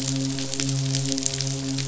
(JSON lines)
{"label": "biophony, midshipman", "recorder": "SoundTrap 500"}